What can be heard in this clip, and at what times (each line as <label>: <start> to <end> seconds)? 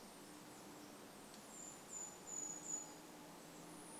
unidentified bird chip note: 0 to 2 seconds
Brown Creeper call: 0 to 4 seconds